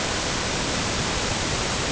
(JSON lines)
{"label": "ambient", "recorder": "HydroMoth"}